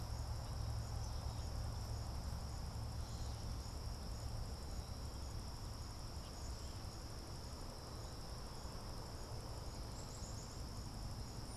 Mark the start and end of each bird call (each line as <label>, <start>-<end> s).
Tufted Titmouse (Baeolophus bicolor), 0.0-11.6 s
Black-capped Chickadee (Poecile atricapillus), 9.5-11.1 s